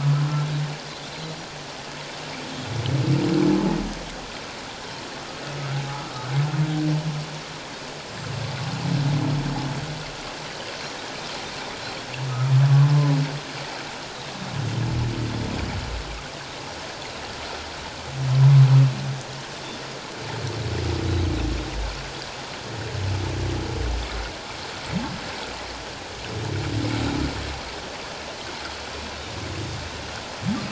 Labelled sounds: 5.9	6.2	humpback whale, 1.2 to 1.4 kHz
8.0	8.3	humpback whale, 7.4 to 7.6 kHz

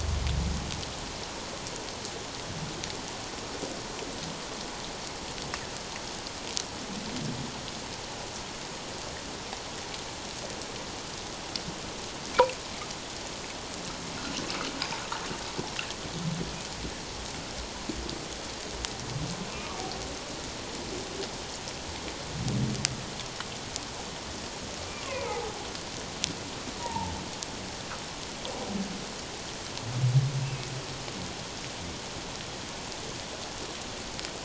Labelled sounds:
19.5	19.8	humpback whale, 1.1 to 1.3 kHz
25.0	25.5	humpback whale, 0.78 to 2.8 kHz
26.8	27.1	humpback whale, 0.81 to 1.0 kHz
30.4	30.7	humpback whale, 2.5 to 2.7 kHz

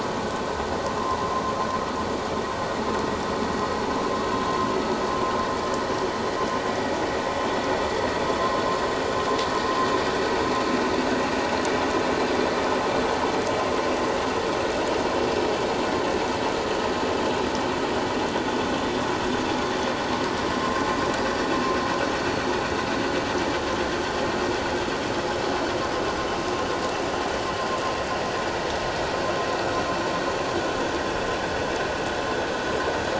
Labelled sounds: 1.0	1.3	vessel noise, 0.91 to 1.1 kHz

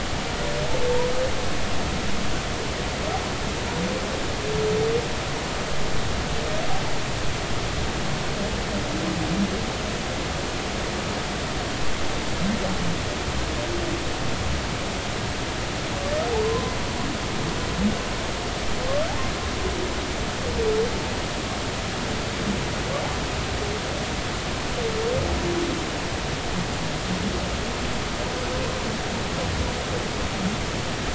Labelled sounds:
16.4	16.7	humpback whale, 0.96 to 1.1 kHz

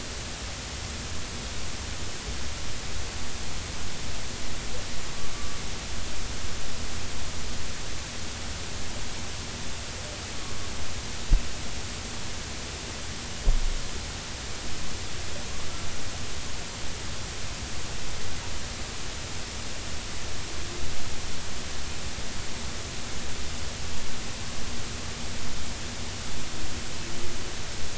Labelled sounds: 5.3	5.6	killer whale, 1.1 to 1.2 kHz

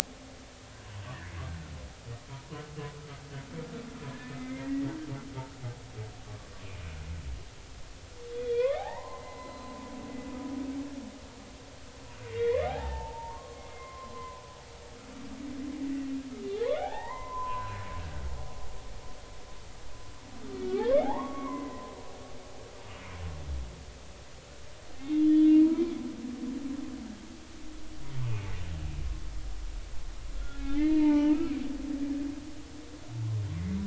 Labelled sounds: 4.1	4.9	humpback whale, 1.7 to 2.2 kHz
8.4	9.8	humpback whale, 0.80 to 4.1 kHz
12.3	14.4	humpback whale, 0.80 to 3.6 kHz
16.5	17.7	humpback whale, 0.80 to 2.1 kHz
20.7	22.9	humpback whale, 0.80 to 3.6 kHz
25.0	25.6	humpback whale, 2.6 to 3.5 kHz
28.2	28.5	humpback whale, 2.1 to 2.7 kHz
30.4	31.4	humpback whale, 0.80 to 2.5 kHz

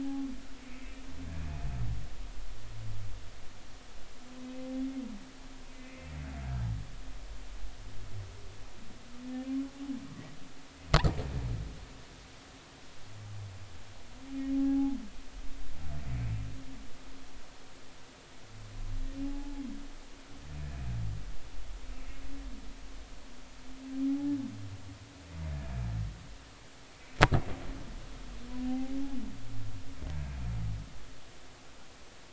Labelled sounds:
0.0	0.9	humpback whale, 0.80 to 2.6 kHz
5.7	6.1	humpback whale, 2.0 to 2.6 kHz
14.5	15.0	humpback whale, 0.80 to 0.90 kHz
19.2	19.6	humpback whale, 0.80 to 0.90 kHz
24.1	24.4	humpback whale, 0.80 to 0.90 kHz
28.7	28.9	humpback whale, 0.80 to 0.83 kHz

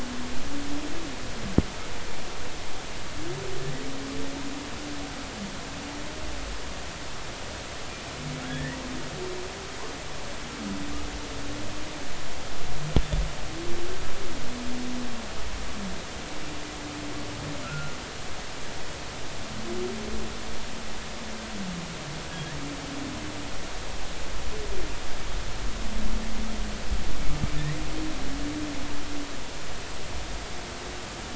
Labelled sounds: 8.5	8.8	humpback whale, 1.5 to 2.0 kHz
17.6	18.0	humpback whale, 1.3 to 1.5 kHz

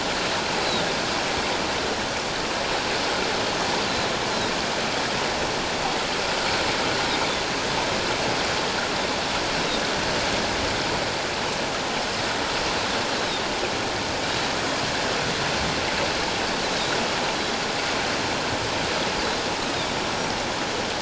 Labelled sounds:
13.2	13.4	Pacific white-sided dolphin, 3.5 to 4.0 kHz
16.6	17.0	Pacific white-sided dolphin, 3.5 to 4.2 kHz

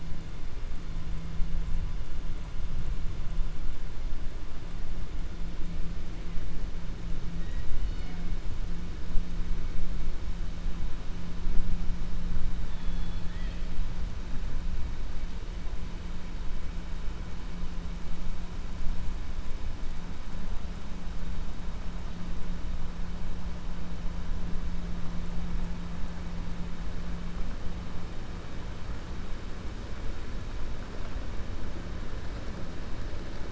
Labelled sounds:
12.6	13.7	killer whale, 1.7 to 4.3 kHz

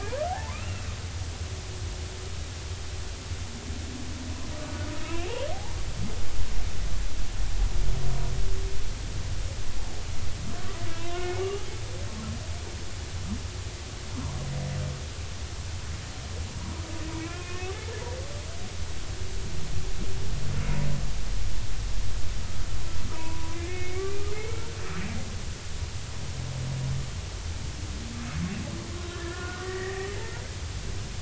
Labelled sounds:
0.2	0.9	humpback whale, 0.80 to 2.9 kHz
5.5	5.8	humpback whale, 0.80 to 0.99 kHz
11.0	11.7	humpback whale, 1.1 to 3.2 kHz
17.2	17.7	humpback whale, 1.1 to 2.7 kHz
23.1	24.6	humpback whale, 0.86 to 2.3 kHz
29.1	30.4	humpback whale, 1.3 to 2.1 kHz

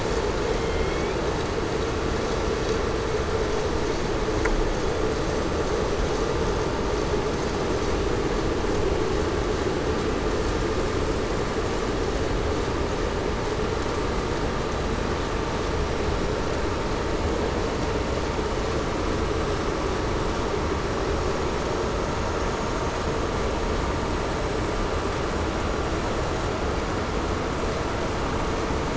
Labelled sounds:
0.6	1.2	killer whale, southern resident, 2.1 to 3.3 kHz

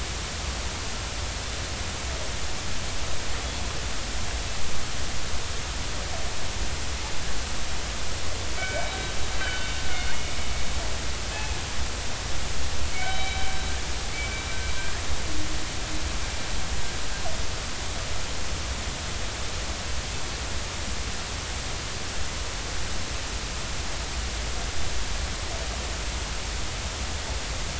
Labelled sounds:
8.6	10.4	killer whale, northern resident, 1.4 to 3.1 kHz
11.3	11.6	killer whale, northern resident, 2.5 to 2.6 kHz
12.9	13.6	killer whale, northern resident, 1.4 to 3.9 kHz

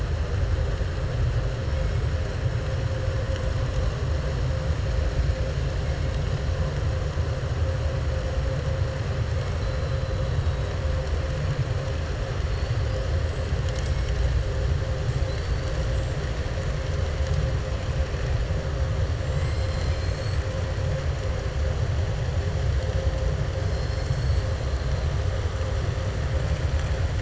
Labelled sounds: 15.2	15.6	killer whale, southern resident, 3.9 to 5.4 kHz

